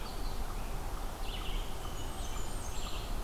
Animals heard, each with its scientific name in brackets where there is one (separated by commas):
Blackburnian Warbler (Setophaga fusca), Red-eyed Vireo (Vireo olivaceus)